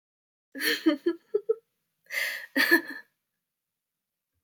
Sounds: Laughter